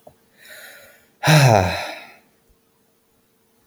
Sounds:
Sigh